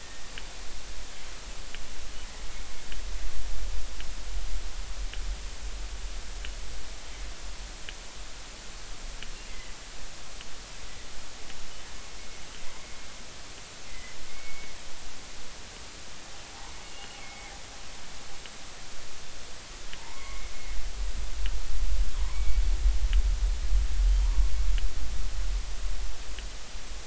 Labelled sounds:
9.5	9.7	killer whale, northern resident, G clan, GG subclan, call N23ii, 1.9 to 2.2 kHz
13.9	14.8	killer whale, northern resident, G clan, GG subclan, call N23ii, 1.9 to 2.3 kHz
16.8	17.5	killer whale, northern resident, G clan, GG subclan, call N23ii, 2.0 to 2.9 kHz
20.0	20.5	killer whale, northern resident, G clan, GG subclan, call N23i, 0.83 to 2.2 kHz
22.1	22.6	killer whale, northern resident, G clan, GG subclan, call N23i, 0.90 to 2.3 kHz
24.2	24.5	killer whale, northern resident, G clan, GG subclan, call N23i, 0.86 to 1.2 kHz

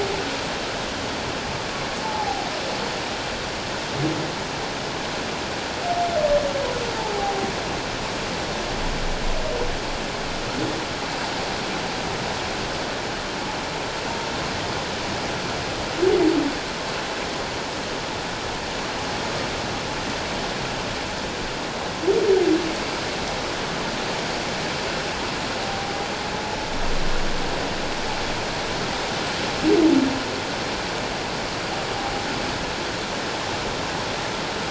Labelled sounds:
2.0	2.5	humpback whale, 0.78 to 0.94 kHz
7.0	7.3	humpback whale, 0.78 to 0.91 kHz
25.6	25.9	humpback whale, 0.78 to 0.81 kHz

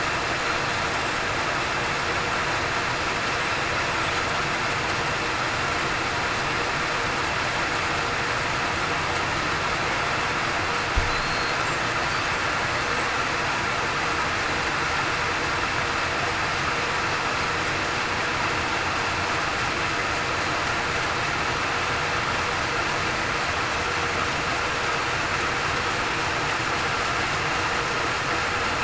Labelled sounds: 11.2	11.6	killer whale, southern resident, 4.2 to 4.3 kHz

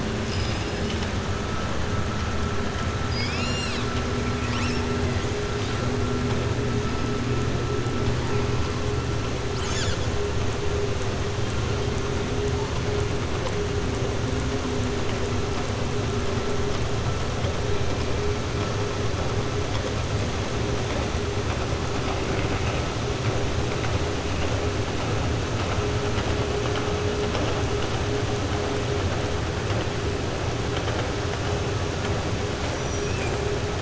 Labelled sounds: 0.2	0.7	killer whale, southern resident, 2.8 to 6.0 kHz
3.0	3.9	killer whale, southern resident, 2.2 to 7.9 kHz
32.7	33.4	killer whale, southern resident, 5.5 to 8.0 kHz

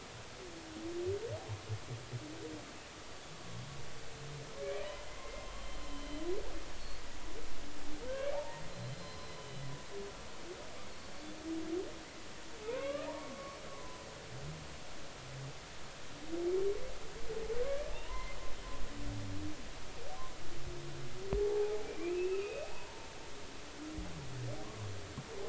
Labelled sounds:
5.1	6.2	humpback whale, 2.0 to 3.1 kHz
6.8	7.0	humpback whale, 4.3 to 4.5 kHz
8.1	8.6	humpback whale, 0.80 to 1.8 kHz
8.9	9.6	humpback whale, 0.96 to 4.2 kHz
12.6	13.4	humpback whale, 0.83 to 2.9 kHz
13.7	14.0	humpback whale, 0.96 to 1.1 kHz
17.6	18.4	humpback whale, 0.80 to 2.4 kHz
21.4	23.1	humpback whale, 0.80 to 2.9 kHz
24.6	24.9	humpback whale, 0.96 to 1.2 kHz

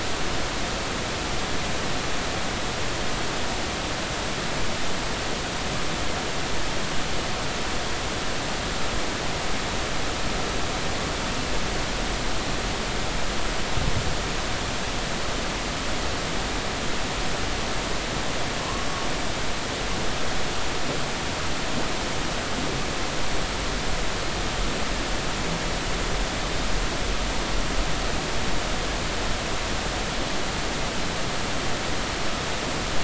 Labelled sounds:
18.6	18.9	humpback whale, 0.96 to 1.2 kHz

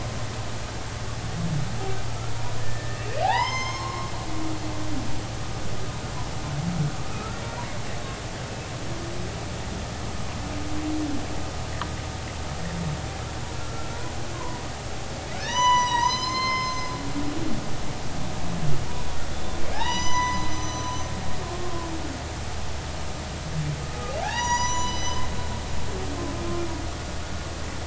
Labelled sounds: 2.3	4.1	humpback whale, 0.80 to 6.5 kHz
7.1	7.4	humpback whale, 1.2 to 1.4 kHz
13.6	14.6	humpback whale, 0.90 to 1.4 kHz
15.4	16.9	humpback whale, 0.86 to 8.0 kHz
19.7	20.9	humpback whale, 0.80 to 7.0 kHz
24.2	25.3	humpback whale, 0.80 to 7.9 kHz

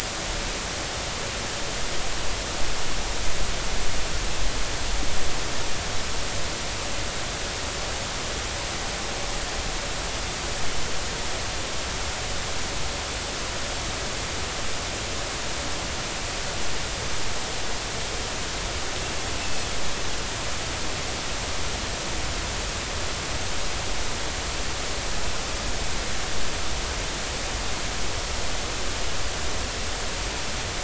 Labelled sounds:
19.4	19.7	Pacific white-sided dolphin, 2.6 to 2.7 kHz

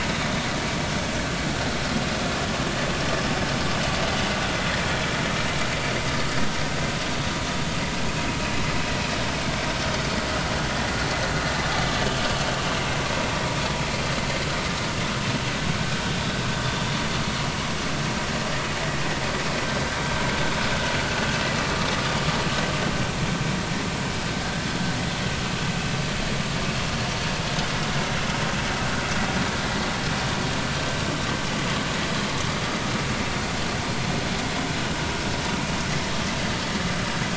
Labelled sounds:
16.1	16.3	vessel noise, 3.3 to 3.7 kHz
24.4	24.7	vessel noise, 1.5 to 1.8 kHz

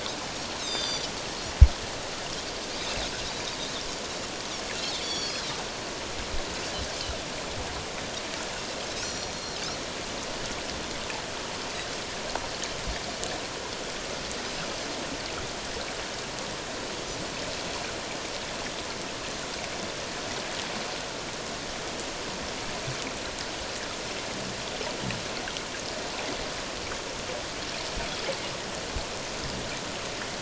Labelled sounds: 0.6	1.1	Pacific white-sided dolphin, 3.4 to 7.5 kHz
5.0	5.5	Pacific white-sided dolphin, 3.2 to 6.9 kHz
9.0	9.3	Pacific white-sided dolphin, 4.2 to 5.8 kHz

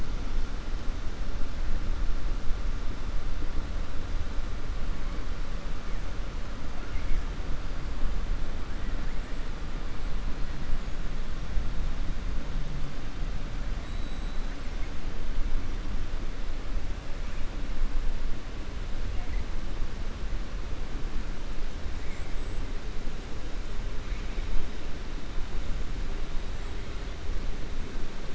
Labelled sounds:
6.8	7.2	killer whale, 1.4 to 2.9 kHz
13.8	14.4	killer whale, 3.6 to 4.4 kHz

